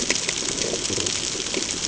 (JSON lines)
{"label": "ambient", "recorder": "HydroMoth"}